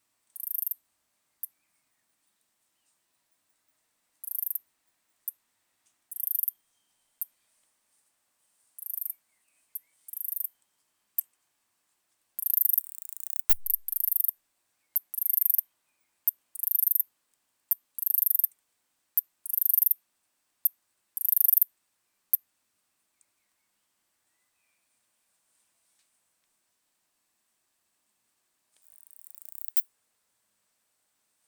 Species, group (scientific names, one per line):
Ancistrura nigrovittata
Orthoptera